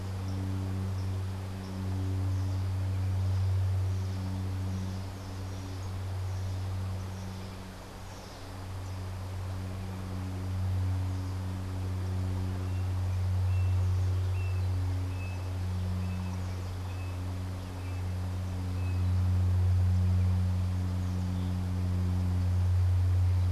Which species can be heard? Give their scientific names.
Dives dives